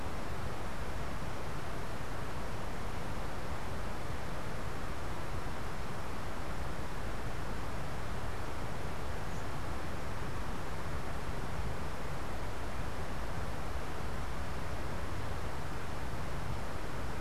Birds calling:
unidentified bird

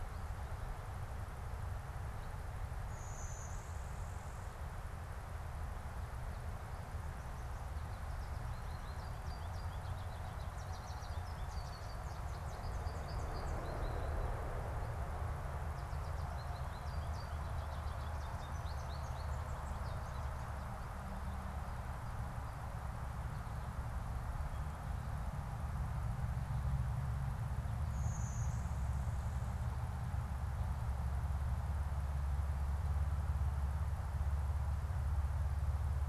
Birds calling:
Blue-winged Warbler (Vermivora cyanoptera), American Goldfinch (Spinus tristis)

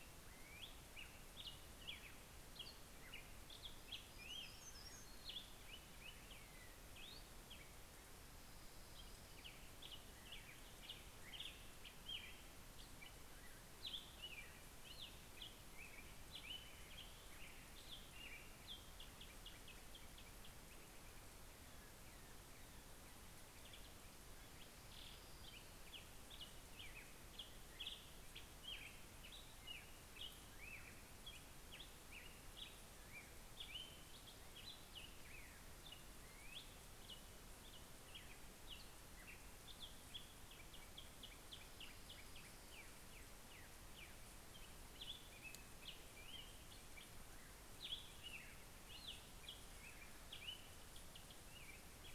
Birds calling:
Hermit Warbler (Setophaga occidentalis), Orange-crowned Warbler (Leiothlypis celata), Black-headed Grosbeak (Pheucticus melanocephalus)

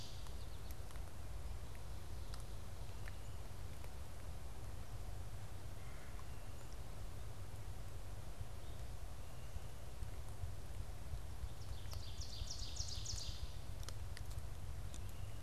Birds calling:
Ovenbird (Seiurus aurocapilla), American Goldfinch (Spinus tristis), Red-bellied Woodpecker (Melanerpes carolinus)

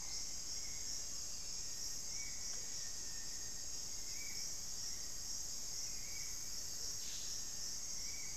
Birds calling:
Spot-winged Antshrike (Pygiptila stellaris), Rufous-fronted Antthrush (Formicarius rufifrons), Hauxwell's Thrush (Turdus hauxwelli), Green-and-rufous Kingfisher (Chloroceryle inda), Amazonian Motmot (Momotus momota), Black-faced Antthrush (Formicarius analis)

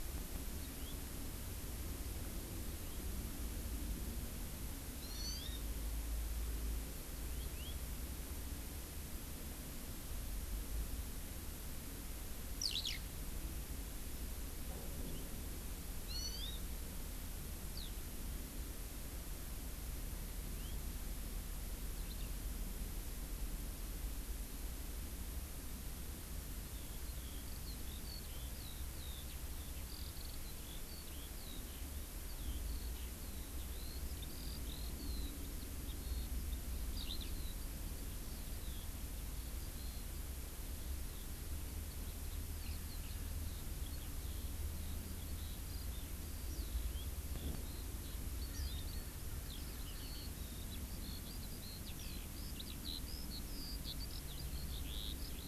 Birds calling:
Hawaii Amakihi (Chlorodrepanis virens), Eurasian Skylark (Alauda arvensis), House Finch (Haemorhous mexicanus)

